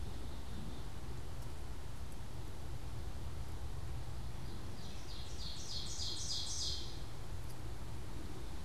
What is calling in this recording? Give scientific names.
Poecile atricapillus, Seiurus aurocapilla